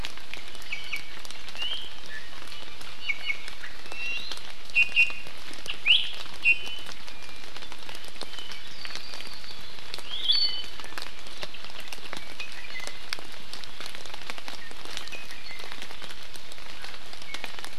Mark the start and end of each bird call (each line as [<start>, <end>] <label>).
[0.70, 1.10] Iiwi (Drepanis coccinea)
[1.60, 1.90] Iiwi (Drepanis coccinea)
[3.00, 3.50] Iiwi (Drepanis coccinea)
[3.80, 4.20] Iiwi (Drepanis coccinea)
[4.70, 5.30] Iiwi (Drepanis coccinea)
[5.70, 6.10] Iiwi (Drepanis coccinea)
[6.40, 6.90] Iiwi (Drepanis coccinea)
[8.20, 9.90] Apapane (Himatione sanguinea)
[10.00, 10.90] Iiwi (Drepanis coccinea)
[12.20, 13.10] Iiwi (Drepanis coccinea)
[14.60, 15.70] Iiwi (Drepanis coccinea)